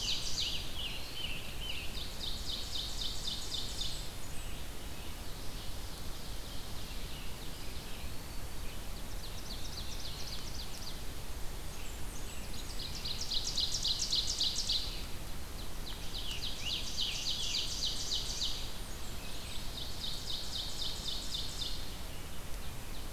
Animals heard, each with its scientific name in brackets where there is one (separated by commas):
Eastern Wood-Pewee (Contopus virens), Scarlet Tanager (Piranga olivacea), Ovenbird (Seiurus aurocapilla), Blackburnian Warbler (Setophaga fusca), Red-eyed Vireo (Vireo olivaceus)